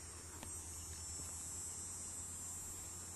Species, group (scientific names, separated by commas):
Neotibicen canicularis, Cicadidae